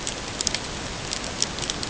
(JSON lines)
{"label": "ambient", "recorder": "HydroMoth"}